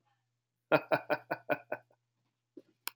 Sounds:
Laughter